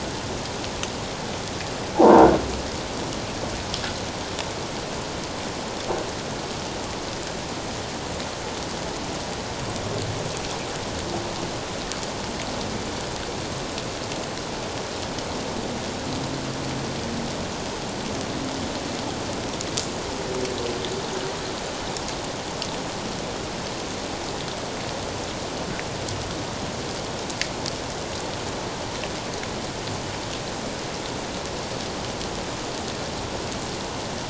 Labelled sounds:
2.0	2.3	croaking sound likely from a nearby submerged object, 0.78 to 1.1 kHz

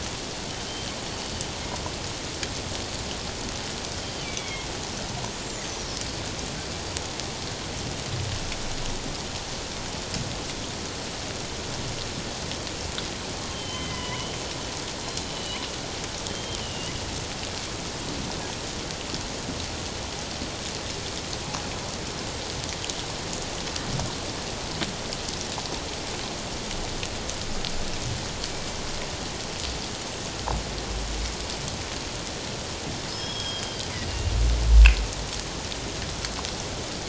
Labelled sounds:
4.0	4.7	killer whale, northern resident, G clan, 2.1 to 3.4 kHz
13.5	14.3	killer whale, northern resident, G clan, 0.94 to 3.2 kHz
15.0	15.6	killer whale, northern resident, G clan, 2.8 to 4.2 kHz
16.3	16.9	killer whale, northern resident, G clan, 2.8 to 3.3 kHz
33.1	34.3	killer whale, northern resident, G clan, 2.7 to 5.3 kHz

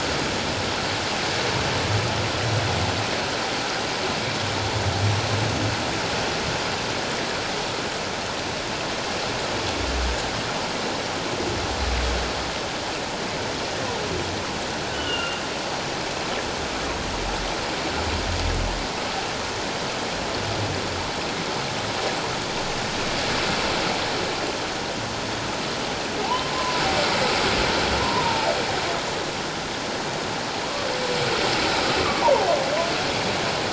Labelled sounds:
14.9	15.4	humpback whale, 1.3 to 3.1 kHz
26.2	26.8	humpback whale, 0.78 to 1.1 kHz
28.0	28.5	humpback whale, 0.84 to 1.1 kHz
32.0	32.5	humpback whale, 0.78 to 1.3 kHz

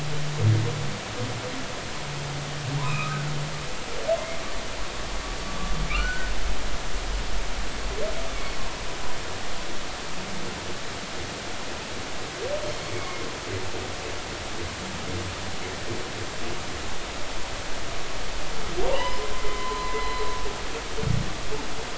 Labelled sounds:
2.8	4.1	humpback whale, 0.90 to 2.7 kHz
5.9	6.3	humpback whale, 1.2 to 1.6 kHz
12.9	13.3	humpback whale, 2.1 to 2.3 kHz
18.9	20.1	humpback whale, 0.83 to 5.2 kHz

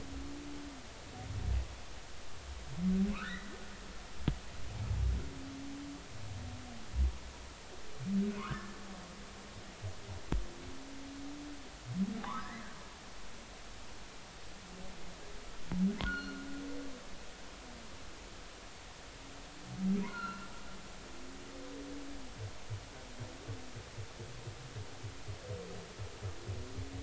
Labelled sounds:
3.1	3.5	humpback whale, 1.0 to 2.0 kHz
8.4	8.8	humpback whale, 0.93 to 1.8 kHz
12.2	12.6	humpback whale, 0.80 to 2.1 kHz
16.0	16.5	humpback whale, 1.3 to 4.4 kHz
20.1	20.5	humpback whale, 1.3 to 4.4 kHz

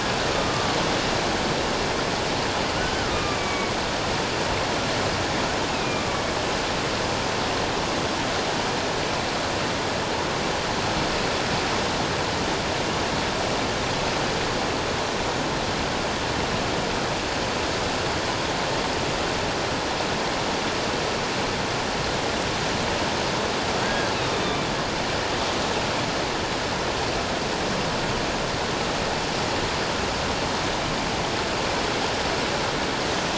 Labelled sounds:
0.3	0.7	killer whale, northern resident, A clan, AA subclan, A01 pod, call N04, 1.1 to 1.3 kHz
2.8	3.7	killer whale, northern resident, A clan, AA subclan, A01 pod, call N04, 1.1 to 2.5 kHz
5.7	6.3	killer whale, northern resident, A clan, AA subclan, A01 pod, call N04, 1.1 to 2.7 kHz
23.8	24.6	killer whale, northern resident, A clan, AA subclan, A01 pod, call N04, 1.5 to 3.8 kHz

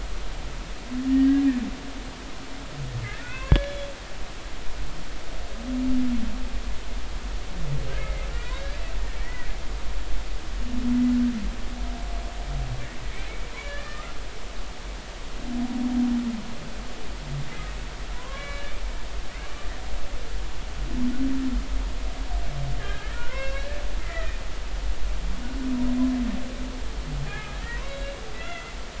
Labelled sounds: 1.1	1.4	humpback whale, 1.8 to 2.0 kHz
3.2	3.9	humpback whale, 1.4 to 3.5 kHz
8.0	8.8	humpback whale, 1.4 to 2.2 kHz
9.2	9.5	humpback whale, 1.8 to 2.0 kHz
13.5	14.1	humpback whale, 0.96 to 1.9 kHz
18.1	18.7	humpback whale, 0.93 to 4.0 kHz
22.8	24.4	humpback whale, 0.93 to 5.5 kHz
27.3	28.7	humpback whale, 1.2 to 4.0 kHz

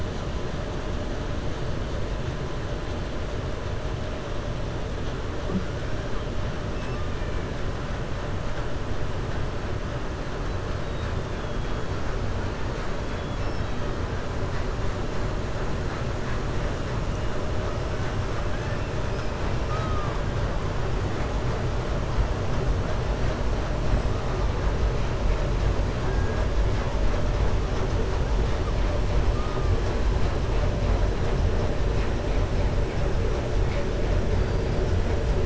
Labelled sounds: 18.5	18.9	killer whale, 0.89 to 2.7 kHz
19.4	20.2	killer whale, 0.80 to 5.5 kHz

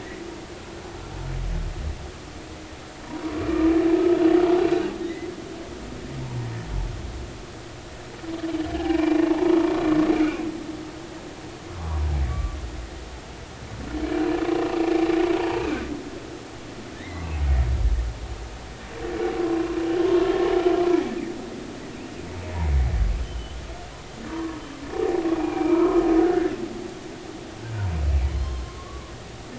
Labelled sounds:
5.0	5.3	humpback whale, 1.8 to 2.1 kHz
6.2	6.4	humpback whale, 0.86 to 0.99 kHz
8.7	9.5	humpback whale, 0.83 to 2.9 kHz
12.3	12.6	humpback whale, 1.1 to 1.2 kHz
15.4	15.6	humpback whale, 0.83 to 0.99 kHz
16.9	17.3	humpback whale, 1.7 to 2.2 kHz
23.2	23.6	humpback whale, 2.9 to 3.2 kHz
24.3	24.6	humpback whale, 0.93 to 1.2 kHz
25.4	26.0	humpback whale, 0.80 to 2.5 kHz
28.4	29.1	humpback whale, 0.96 to 3.2 kHz

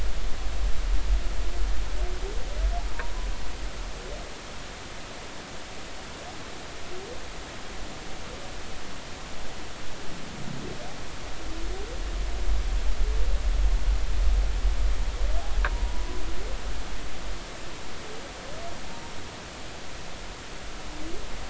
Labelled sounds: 15.7	16.2	humpback whale, 0.90 to 1.0 kHz

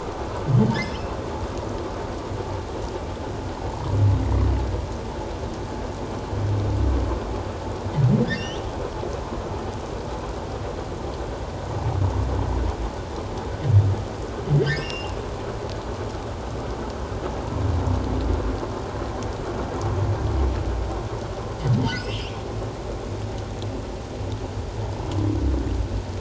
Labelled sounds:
8.2	8.7	humpback whale, 1.5 to 6.2 kHz
14.6	15.1	humpback whale, 1.7 to 5.7 kHz
21.8	22.3	humpback whale, 2.4 to 5.2 kHz

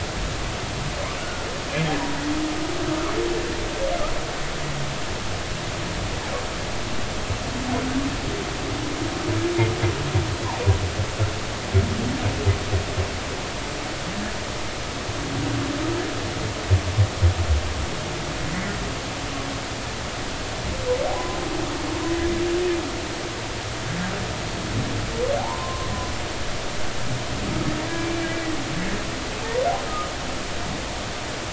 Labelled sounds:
1.2	1.4	humpback whale, 1.4 to 1.5 kHz
21.1	21.4	humpback whale, 0.93 to 1.1 kHz
25.4	25.9	humpback whale, 0.80 to 1.1 kHz

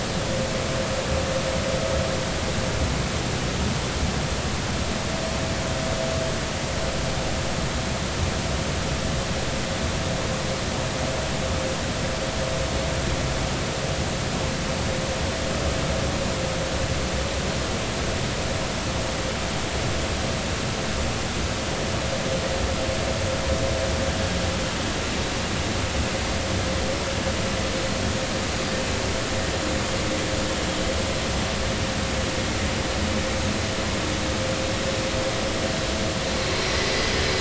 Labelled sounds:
36.7	37.2	vessel noise, 1.8 to 4.9 kHz

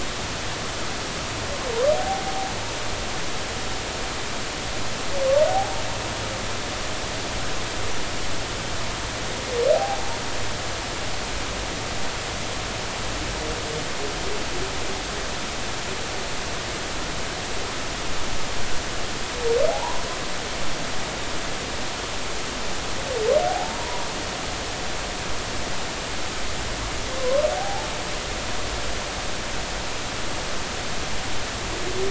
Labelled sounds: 2.0	2.5	humpback whale, 0.80 to 0.90 kHz
5.5	5.8	humpback whale, 0.80 to 0.90 kHz
9.7	10.0	humpback whale, 0.80 to 0.93 kHz
19.7	20.0	humpback whale, 0.80 to 1.1 kHz
23.5	24.1	humpback whale, 0.80 to 1.0 kHz
27.2	27.9	humpback whale, 0.80 to 1.1 kHz

